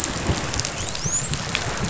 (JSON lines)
{"label": "biophony, dolphin", "recorder": "SoundTrap 500"}